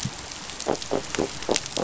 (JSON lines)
{"label": "biophony", "recorder": "SoundTrap 500"}